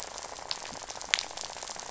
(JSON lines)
{"label": "biophony, rattle", "recorder": "SoundTrap 500"}